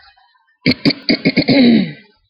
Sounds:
Throat clearing